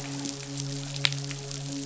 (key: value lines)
label: biophony, midshipman
recorder: SoundTrap 500